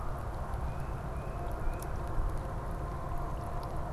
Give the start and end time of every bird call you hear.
0.5s-2.0s: Tufted Titmouse (Baeolophus bicolor)

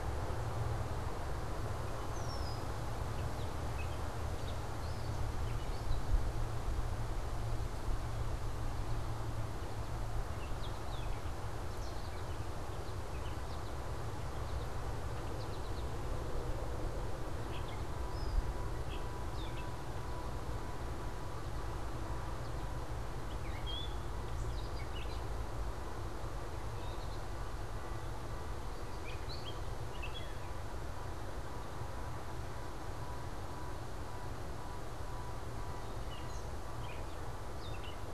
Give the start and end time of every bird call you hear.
0.0s-3.0s: Red-winged Blackbird (Agelaius phoeniceus)
3.1s-6.2s: Gray Catbird (Dumetella carolinensis)
8.6s-18.1s: American Goldfinch (Spinus tristis)
17.8s-38.1s: Gray Catbird (Dumetella carolinensis)

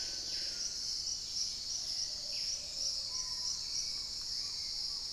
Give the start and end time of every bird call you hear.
0.0s-3.2s: Plumbeous Pigeon (Patagioenas plumbea)
0.0s-5.1s: Screaming Piha (Lipaugus vociferans)
0.8s-2.2s: Cinereous Mourner (Laniocera hypopyrra)
0.9s-5.1s: Hauxwell's Thrush (Turdus hauxwelli)
1.0s-2.3s: Dusky-capped Greenlet (Pachysylvia hypoxantha)
2.1s-2.9s: unidentified bird
3.8s-5.1s: Black-tailed Trogon (Trogon melanurus)

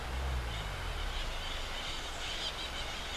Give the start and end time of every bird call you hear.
0.3s-3.2s: Crimson-fronted Parakeet (Psittacara finschi)

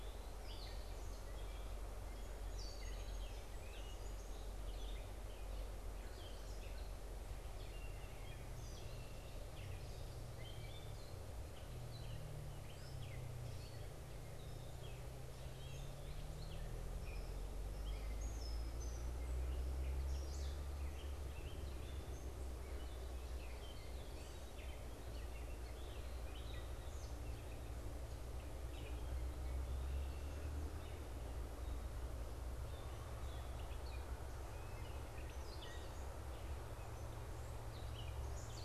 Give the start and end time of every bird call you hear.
0.0s-38.6s: Gray Catbird (Dumetella carolinensis)
2.0s-4.6s: Song Sparrow (Melospiza melodia)
8.5s-9.4s: Red-winged Blackbird (Agelaius phoeniceus)
29.6s-30.5s: Red-winged Blackbird (Agelaius phoeniceus)

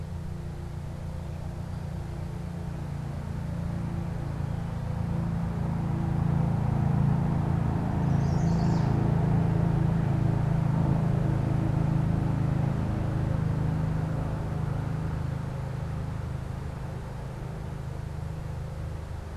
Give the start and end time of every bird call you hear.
7.9s-9.0s: Chestnut-sided Warbler (Setophaga pensylvanica)

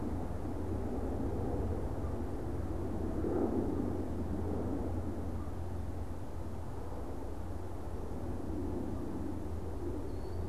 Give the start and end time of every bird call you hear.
9.9s-10.5s: Killdeer (Charadrius vociferus)

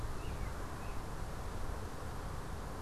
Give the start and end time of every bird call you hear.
0.0s-2.8s: American Robin (Turdus migratorius)

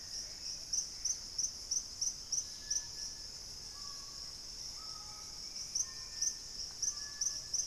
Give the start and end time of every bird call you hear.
0.0s-7.7s: Screaming Piha (Lipaugus vociferans)
0.1s-1.3s: Gray Antbird (Cercomacra cinerascens)
2.1s-7.7s: Dusky-capped Greenlet (Pachysylvia hypoxantha)
4.6s-7.7s: Bright-rumped Attila (Attila spadiceus)

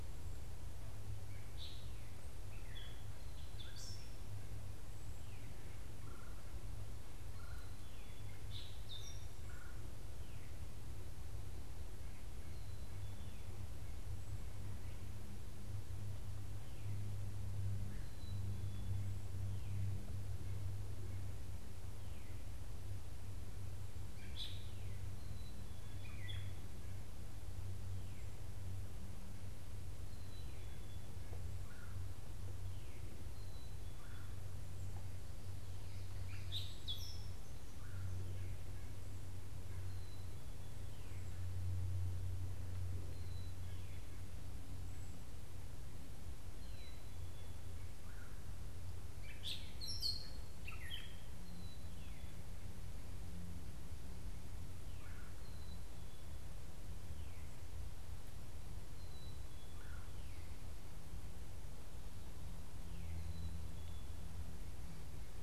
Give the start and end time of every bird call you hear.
0.0s-1.6s: White-breasted Nuthatch (Sitta carolinensis)
1.1s-4.3s: Gray Catbird (Dumetella carolinensis)
3.0s-4.3s: Black-capped Chickadee (Poecile atricapillus)
5.8s-10.1s: Red-bellied Woodpecker (Melanerpes carolinus)
7.0s-8.4s: Black-capped Chickadee (Poecile atricapillus)
8.2s-9.4s: Gray Catbird (Dumetella carolinensis)
12.2s-13.4s: Black-capped Chickadee (Poecile atricapillus)
17.9s-19.1s: Black-capped Chickadee (Poecile atricapillus)
24.1s-26.9s: Gray Catbird (Dumetella carolinensis)
24.9s-26.2s: Black-capped Chickadee (Poecile atricapillus)
29.9s-31.1s: Black-capped Chickadee (Poecile atricapillus)
31.4s-32.0s: Red-bellied Woodpecker (Melanerpes carolinus)
33.1s-34.4s: Black-capped Chickadee (Poecile atricapillus)
33.9s-34.4s: Red-bellied Woodpecker (Melanerpes carolinus)
35.6s-37.6s: Gray Catbird (Dumetella carolinensis)
37.6s-38.1s: Red-bellied Woodpecker (Melanerpes carolinus)
39.6s-41.0s: Black-capped Chickadee (Poecile atricapillus)
43.0s-44.1s: Black-capped Chickadee (Poecile atricapillus)
46.5s-47.8s: Black-capped Chickadee (Poecile atricapillus)
47.9s-48.5s: Red-bellied Woodpecker (Melanerpes carolinus)
49.0s-51.5s: Gray Catbird (Dumetella carolinensis)
51.2s-52.5s: Black-capped Chickadee (Poecile atricapillus)
55.0s-55.5s: Red-bellied Woodpecker (Melanerpes carolinus)
55.2s-56.5s: Black-capped Chickadee (Poecile atricapillus)
58.9s-60.0s: Black-capped Chickadee (Poecile atricapillus)
59.5s-60.2s: Red-bellied Woodpecker (Melanerpes carolinus)
63.0s-64.2s: Black-capped Chickadee (Poecile atricapillus)

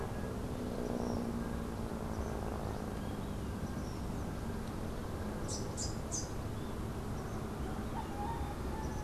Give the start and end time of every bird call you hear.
5.3s-6.4s: Rufous-capped Warbler (Basileuterus rufifrons)

